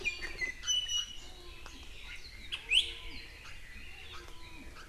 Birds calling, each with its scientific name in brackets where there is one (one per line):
Iiwi (Drepanis coccinea)